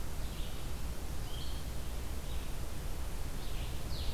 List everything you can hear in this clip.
Blue-headed Vireo